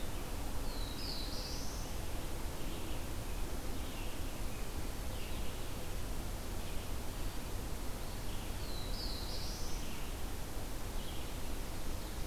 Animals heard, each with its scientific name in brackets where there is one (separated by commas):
Red-eyed Vireo (Vireo olivaceus), Ovenbird (Seiurus aurocapilla), Black-throated Blue Warbler (Setophaga caerulescens)